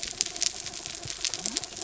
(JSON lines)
{"label": "anthrophony, mechanical", "recorder": "SoundTrap 300"}
{"label": "biophony", "recorder": "SoundTrap 300"}